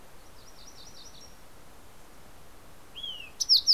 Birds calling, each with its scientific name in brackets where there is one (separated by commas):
MacGillivray's Warbler (Geothlypis tolmiei), Fox Sparrow (Passerella iliaca)